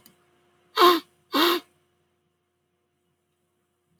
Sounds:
Sniff